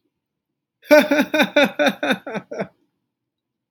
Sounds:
Laughter